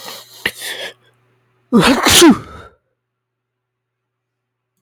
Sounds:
Sneeze